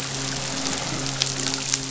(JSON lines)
{"label": "biophony, midshipman", "recorder": "SoundTrap 500"}